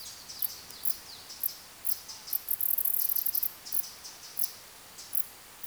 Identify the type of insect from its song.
orthopteran